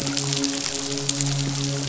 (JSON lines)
{"label": "biophony, midshipman", "recorder": "SoundTrap 500"}